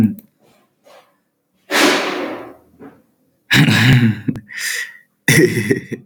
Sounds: Laughter